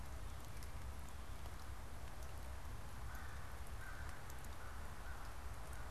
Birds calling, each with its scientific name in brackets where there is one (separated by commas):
American Crow (Corvus brachyrhynchos)